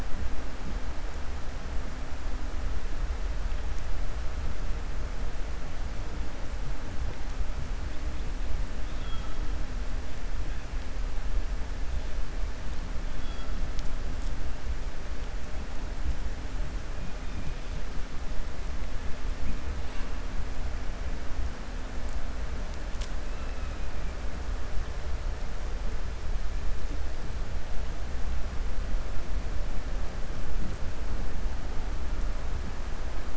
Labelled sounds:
8.8	9.3	killer whale, 1.3 to 3.9 kHz

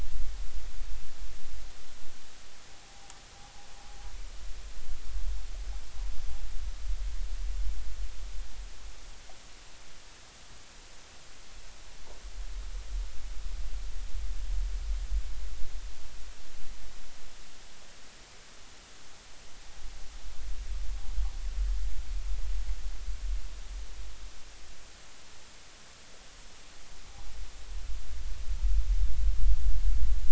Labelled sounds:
2.7	3.0	noise likely from the mooring, 0.80 to 0.90 kHz

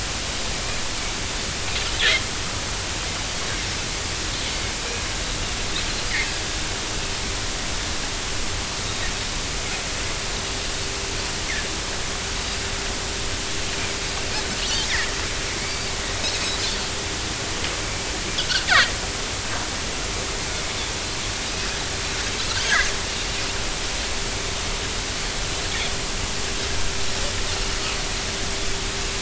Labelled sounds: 15.6	15.9	Pacific white-sided dolphin, 2.1 to 2.4 kHz
18.7	18.9	Pacific white-sided dolphin, 1.0 to 2.4 kHz
22.6	22.9	Pacific white-sided dolphin, 1.5 to 2.1 kHz

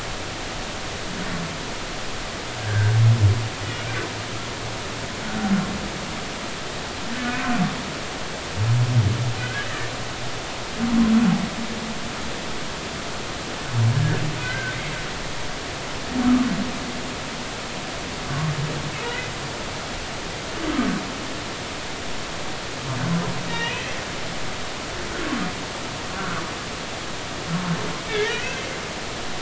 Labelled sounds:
2.6	3.0	humpback whale, 1.4 to 1.7 kHz
7.2	7.6	humpback whale, 1.4 to 1.6 kHz
9.4	9.9	humpback whale, 1.4 to 2.0 kHz
14.4	14.8	humpback whale, 1.4 to 2.1 kHz
18.3	18.5	humpback whale, 1.1 to 1.2 kHz
23.5	24.0	humpback whale, 1.8 to 3.2 kHz
26.2	26.4	humpback whale, 1.2 to 1.7 kHz
28.1	28.6	humpback whale, 1.4 to 2.0 kHz

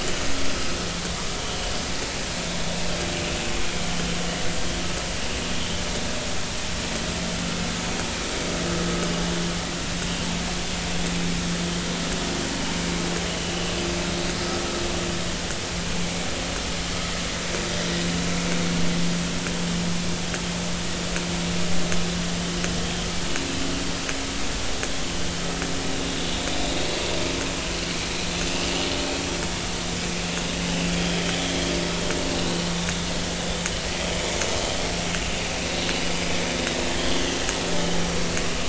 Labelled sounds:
31.0	31.3	vessel noise, 3.0 to 3.4 kHz
36.9	37.3	vessel noise, 3.1 to 3.5 kHz

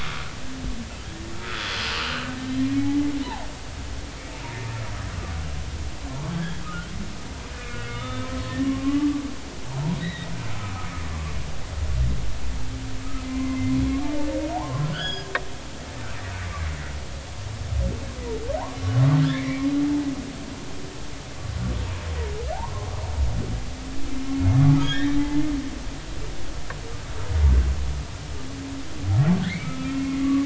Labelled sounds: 1.5	1.8	humpback whale, 3.4 to 3.5 kHz
2.4	3.5	humpback whale, 0.80 to 3.2 kHz
6.3	6.9	humpback whale, 1.2 to 1.8 kHz
7.5	8.3	humpback whale, 1.2 to 3.6 kHz
8.6	9.2	humpback whale, 1.0 to 1.2 kHz
9.9	10.8	humpback whale, 1.2 to 4.0 kHz
13.2	15.3	humpback whale, 0.80 to 6.8 kHz
16.7	16.9	humpback whale, 1.9 to 2.1 kHz
19.3	19.7	humpback whale, 1.9 to 2.4 kHz
24.8	25.2	humpback whale, 1.5 to 3.4 kHz
29.4	30.4	humpback whale, 1.1 to 2.4 kHz

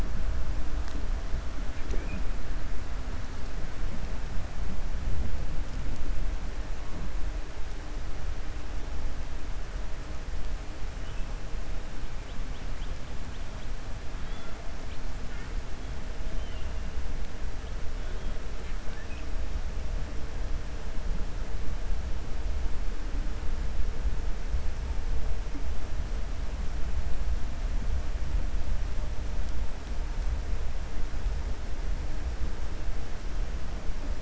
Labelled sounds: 16.3	16.7	killer whale, 2.0 to 3.2 kHz

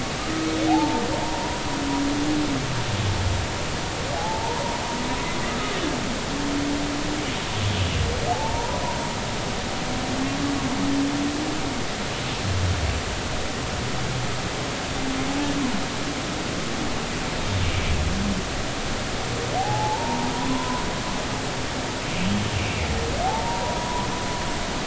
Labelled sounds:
0.2	1.6	humpback whale, 0.80 to 1.3 kHz
4.2	4.6	humpback whale, 0.80 to 1.1 kHz
8.3	8.8	humpback whale, 0.80 to 1.0 kHz
19.6	20.8	humpback whale, 0.80 to 1.1 kHz
23.2	24.1	humpback whale, 0.80 to 1.0 kHz

